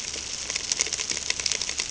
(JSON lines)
{"label": "ambient", "recorder": "HydroMoth"}